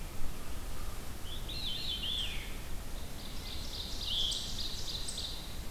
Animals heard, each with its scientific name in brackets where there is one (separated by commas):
Ovenbird (Seiurus aurocapilla), Veery (Catharus fuscescens)